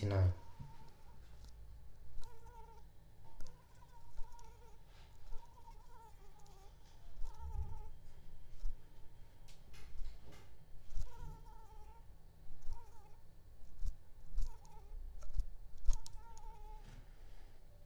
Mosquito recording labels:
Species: Anopheles arabiensis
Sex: female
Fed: unfed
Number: one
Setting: cup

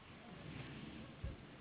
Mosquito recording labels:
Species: Anopheles gambiae s.s.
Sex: female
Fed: unfed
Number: one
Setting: insect culture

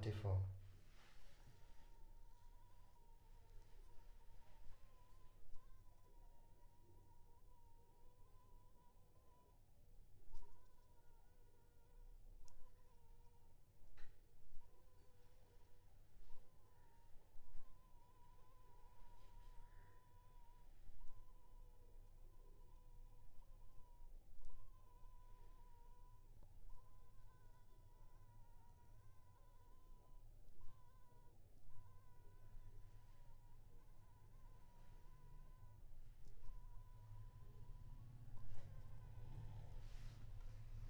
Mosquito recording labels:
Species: Anopheles funestus s.s.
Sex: female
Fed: unfed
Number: one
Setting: cup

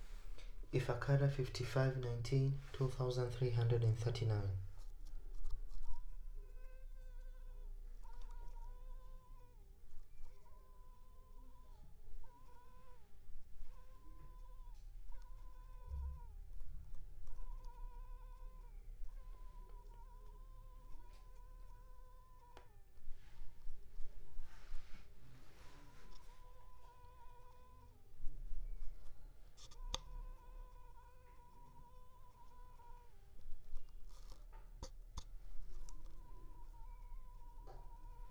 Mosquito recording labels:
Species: Culex pipiens complex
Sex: female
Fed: unfed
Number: one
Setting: cup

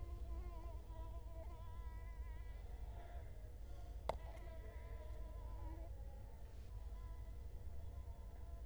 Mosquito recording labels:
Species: Culex quinquefasciatus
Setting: cup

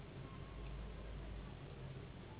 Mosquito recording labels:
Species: Anopheles gambiae s.s.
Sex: female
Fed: unfed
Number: one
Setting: insect culture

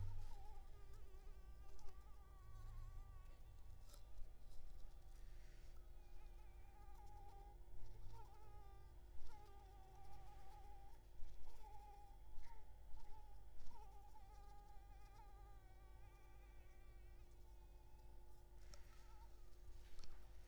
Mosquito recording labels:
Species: Anopheles maculipalpis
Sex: female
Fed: unfed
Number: one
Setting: cup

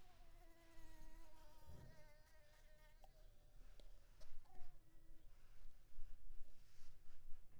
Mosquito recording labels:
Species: Mansonia uniformis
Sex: female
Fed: unfed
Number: one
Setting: cup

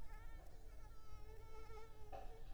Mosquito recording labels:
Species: Mansonia uniformis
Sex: female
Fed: unfed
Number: one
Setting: cup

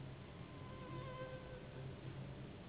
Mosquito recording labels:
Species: Anopheles gambiae s.s.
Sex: female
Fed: unfed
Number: one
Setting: insect culture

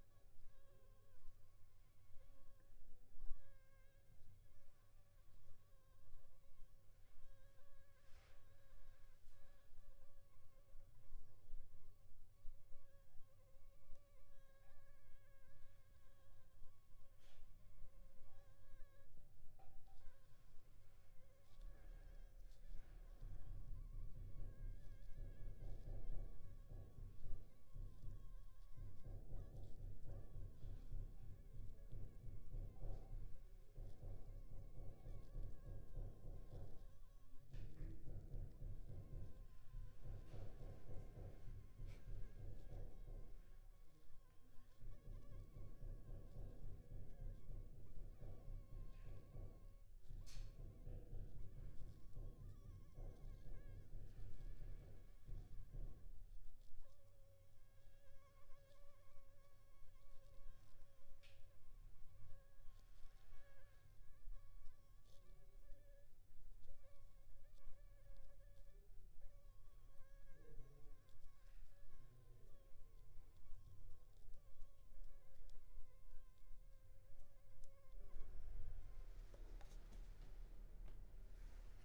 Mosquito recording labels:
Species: Anopheles funestus s.s.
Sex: female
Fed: unfed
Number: one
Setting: cup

